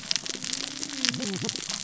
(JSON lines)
{"label": "biophony, cascading saw", "recorder": "SoundTrap 600 or HydroMoth"}